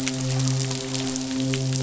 {"label": "biophony, midshipman", "recorder": "SoundTrap 500"}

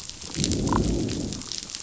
{"label": "biophony, growl", "recorder": "SoundTrap 500"}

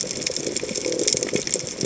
{"label": "biophony", "recorder": "HydroMoth"}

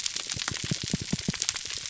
{"label": "biophony, pulse", "recorder": "SoundTrap 300"}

